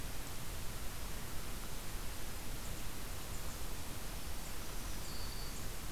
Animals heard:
Black-throated Green Warbler (Setophaga virens)

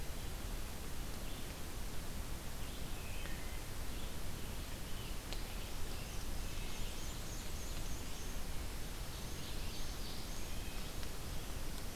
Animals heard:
American Robin (Turdus migratorius), Wood Thrush (Hylocichla mustelina), Ovenbird (Seiurus aurocapilla), Black-and-white Warbler (Mniotilta varia)

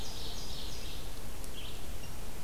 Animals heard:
Ovenbird (Seiurus aurocapilla), Red-eyed Vireo (Vireo olivaceus)

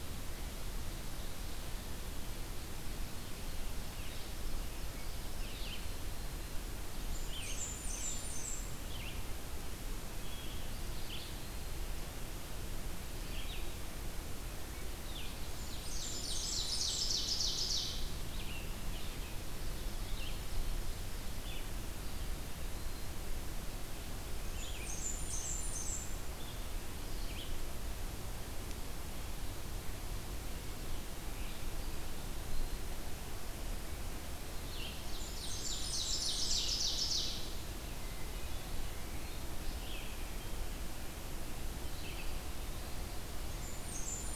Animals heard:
Eastern Wood-Pewee (Contopus virens), Ovenbird (Seiurus aurocapilla), Blackburnian Warbler (Setophaga fusca), Red-eyed Vireo (Vireo olivaceus), Hermit Thrush (Catharus guttatus)

